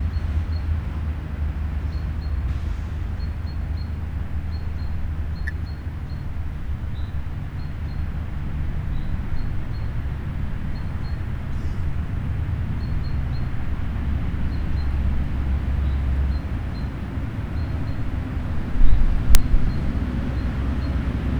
Is this inside?
no